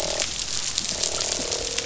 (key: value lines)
label: biophony, croak
recorder: SoundTrap 500